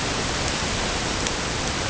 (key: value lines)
label: ambient
recorder: HydroMoth